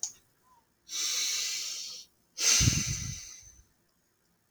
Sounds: Sigh